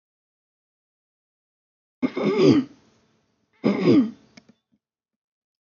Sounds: Throat clearing